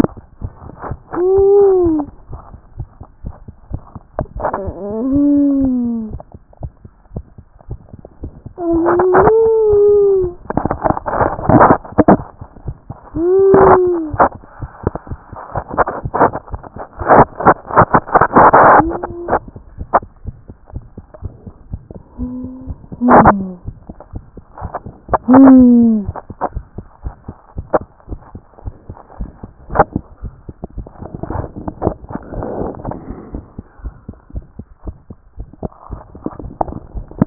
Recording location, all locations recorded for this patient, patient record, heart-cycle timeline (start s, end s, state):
tricuspid valve (TV)
aortic valve (AV)+pulmonary valve (PV)+tricuspid valve (TV)
#Age: Child
#Sex: Male
#Height: nan
#Weight: 28.2 kg
#Pregnancy status: False
#Murmur: Present
#Murmur locations: aortic valve (AV)+pulmonary valve (PV)+tricuspid valve (TV)
#Most audible location: pulmonary valve (PV)
#Systolic murmur timing: Early-systolic
#Systolic murmur shape: Decrescendo
#Systolic murmur grading: I/VI
#Systolic murmur pitch: Low
#Systolic murmur quality: Blowing
#Diastolic murmur timing: nan
#Diastolic murmur shape: nan
#Diastolic murmur grading: nan
#Diastolic murmur pitch: nan
#Diastolic murmur quality: nan
#Outcome: Abnormal
#Campaign: 2014 screening campaign
0.00	19.68	unannotated
19.68	19.80	diastole
19.80	19.88	S1
19.88	19.98	systole
19.98	20.10	S2
20.10	20.26	diastole
20.26	20.36	S1
20.36	20.48	systole
20.48	20.58	S2
20.58	20.74	diastole
20.74	20.84	S1
20.84	20.96	systole
20.96	21.06	S2
21.06	21.24	diastole
21.24	21.32	S1
21.32	21.46	systole
21.46	21.54	S2
21.54	21.72	diastole
21.72	21.82	S1
21.82	21.92	systole
21.92	22.02	S2
22.02	22.20	diastole
22.20	37.26	unannotated